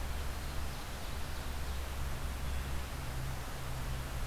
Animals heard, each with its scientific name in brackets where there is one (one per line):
Ovenbird (Seiurus aurocapilla)